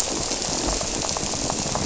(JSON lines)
{"label": "biophony", "recorder": "SoundTrap 300"}